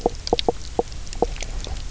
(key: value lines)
label: biophony, knock croak
recorder: SoundTrap 300